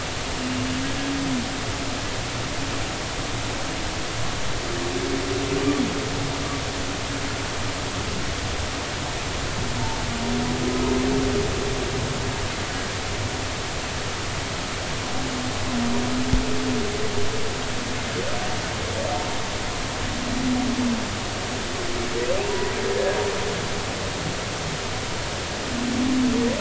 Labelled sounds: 22.4	23.2	humpback whale, 0.86 to 1.8 kHz

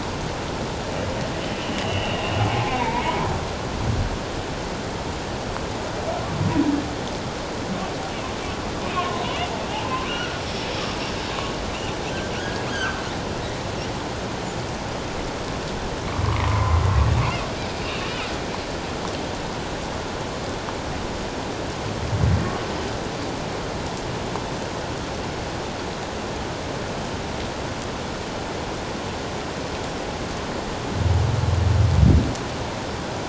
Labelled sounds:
1.6	2.2	humpback whale, 2.6 to 3.1 kHz
2.7	3.2	humpback whale, 0.84 to 2.5 kHz
8.9	10.4	humpback whale, 0.84 to 1.6 kHz
12.4	12.7	humpback whale, 1.4 to 1.7 kHz
16.4	16.8	humpback whale, 0.91 to 1.2 kHz
17.2	18.1	humpback whale, 2.1 to 2.9 kHz

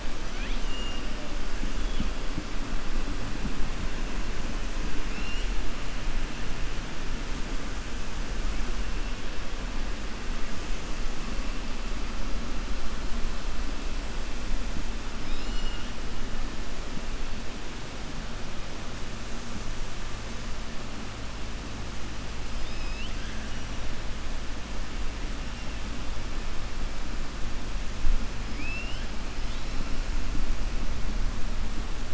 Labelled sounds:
0.2	1.0	killer whale, 1.5 to 4.1 kHz
5.0	5.5	killer whale, 2.0 to 7.9 kHz
15.2	15.9	killer whale, 2.4 to 7.3 kHz
22.5	23.1	killer whale, 2.1 to 5.2 kHz
28.5	29.1	killer whale, 2.2 to 3.3 kHz

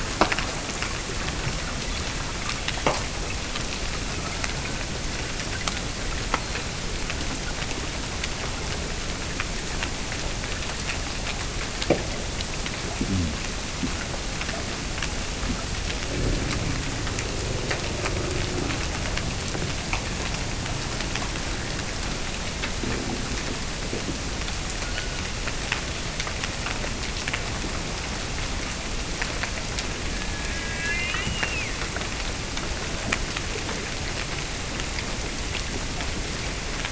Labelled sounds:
30.1	31.9	killer whale, Bigg's (transient), Gulf of Alaska transient, 1.3 to 3.1 kHz

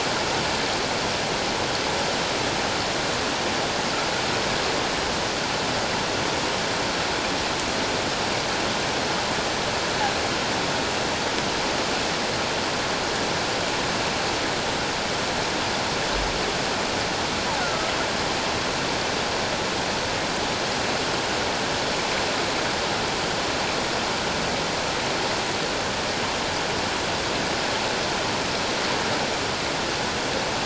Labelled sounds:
17.6	17.9	killer whale, offshore, call OFF17, 1.2 to 1.6 kHz

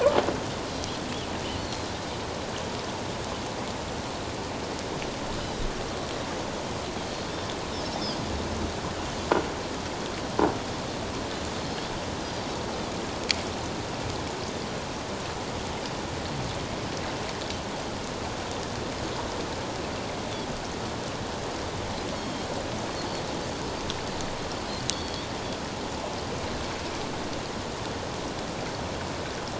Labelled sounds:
0.7	1.0	Pacific white-sided dolphin, 4.0 to 4.3 kHz
1.6	1.9	Pacific white-sided dolphin, 4.1 to 4.6 kHz
5.4	5.7	Pacific white-sided dolphin, 3.7 to 4.2 kHz
11.6	12.5	Pacific white-sided dolphin, 3.1 to 5.0 kHz
22.2	22.5	Pacific white-sided dolphin, 3.2 to 3.3 kHz
24.9	25.3	Pacific white-sided dolphin, 3.2 to 4.6 kHz

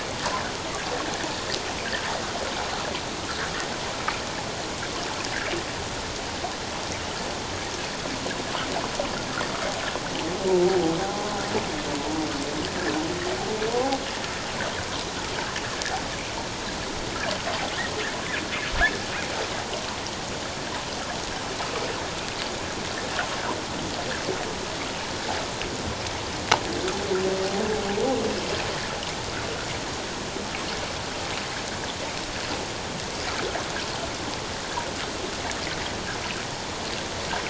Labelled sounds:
10.5	11.3	humpback whale, 0.78 to 1.0 kHz
13.7	14.0	humpback whale, 0.78 to 0.88 kHz

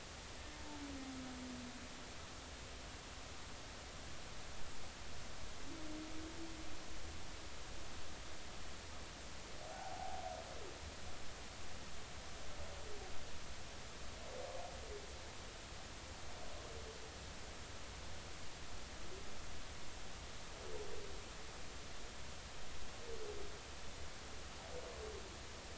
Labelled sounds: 9.7	10.2	humpback whale, 0.80 to 0.93 kHz

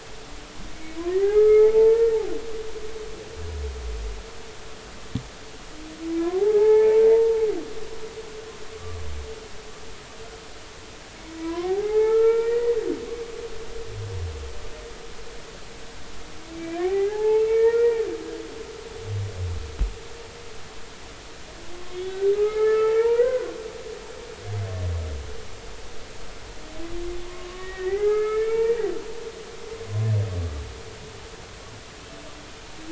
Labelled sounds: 1.1	2.2	humpback whale, 0.80 to 2.2 kHz
6.4	7.4	humpback whale, 0.80 to 2.5 kHz
8.7	9.0	humpback whale, 1.1 to 1.2 kHz
11.4	12.7	humpback whale, 0.80 to 2.5 kHz
16.5	18.1	humpback whale, 0.80 to 2.5 kHz
21.7	23.6	humpback whale, 0.86 to 3.5 kHz
27.2	28.8	humpback whale, 0.80 to 2.4 kHz

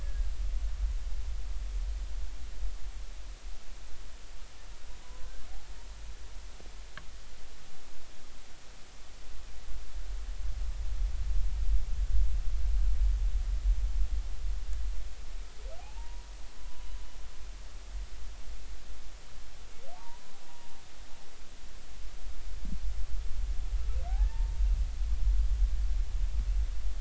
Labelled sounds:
5.0	5.3	humpback whale, 0.96 to 1.1 kHz
15.8	16.9	humpback whale, 0.80 to 1.0 kHz
19.9	20.3	humpback whale, 0.80 to 1.0 kHz
24.1	24.5	humpback whale, 0.80 to 1.9 kHz

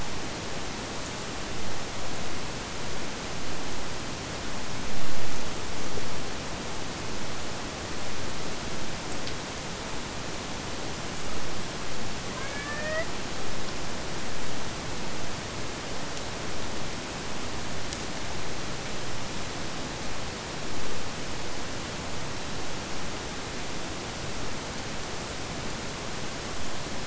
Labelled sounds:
12.3	13.2	killer whale, Bigg's (transient), AT1 transient, 0.46 to 3.4 kHz

